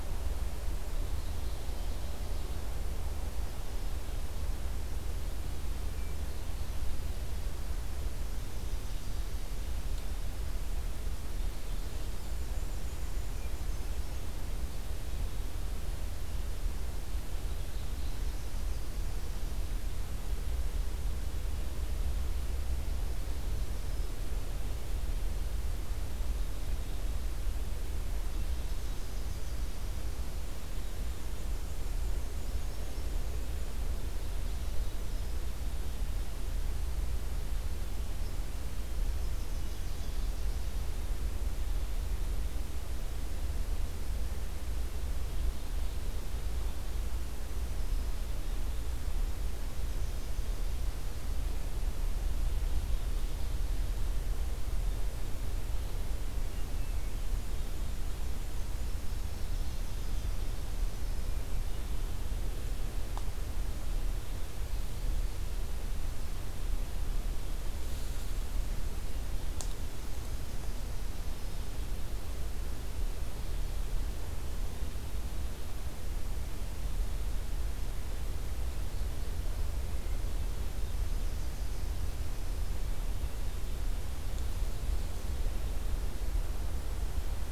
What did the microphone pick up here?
Ovenbird, Yellow-rumped Warbler, Black-and-white Warbler, Black-throated Green Warbler